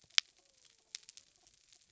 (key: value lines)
label: biophony
recorder: SoundTrap 300